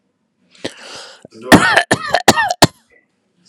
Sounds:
Cough